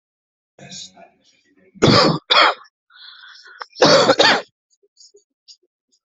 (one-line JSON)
{"expert_labels": [{"quality": "good", "cough_type": "dry", "dyspnea": false, "wheezing": false, "stridor": false, "choking": false, "congestion": false, "nothing": true, "diagnosis": "lower respiratory tract infection", "severity": "severe"}], "age": 23, "gender": "male", "respiratory_condition": false, "fever_muscle_pain": false, "status": "healthy"}